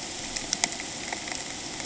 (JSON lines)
{"label": "ambient", "recorder": "HydroMoth"}